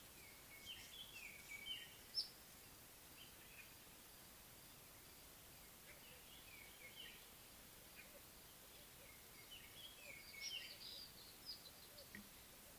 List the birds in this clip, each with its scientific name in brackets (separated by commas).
Little Bee-eater (Merops pusillus), White-browed Robin-Chat (Cossypha heuglini)